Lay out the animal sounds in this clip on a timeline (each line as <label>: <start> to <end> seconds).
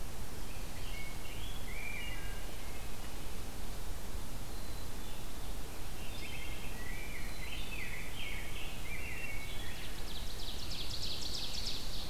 Wood Thrush (Hylocichla mustelina): 0.6 to 3.2 seconds
Black-capped Chickadee (Poecile atricapillus): 4.3 to 5.3 seconds
Wood Thrush (Hylocichla mustelina): 6.0 to 6.7 seconds
Rose-breasted Grosbeak (Pheucticus ludovicianus): 6.5 to 9.6 seconds
Black-capped Chickadee (Poecile atricapillus): 7.0 to 8.1 seconds
Ovenbird (Seiurus aurocapilla): 9.3 to 12.1 seconds